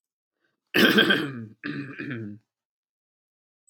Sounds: Throat clearing